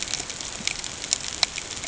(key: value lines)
label: ambient
recorder: HydroMoth